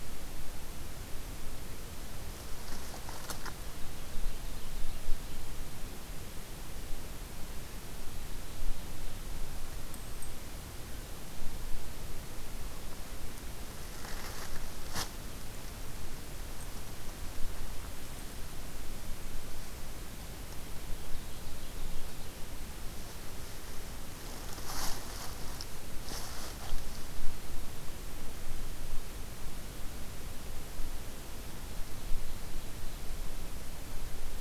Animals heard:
forest ambience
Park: Hubbard Brook Experimental Forest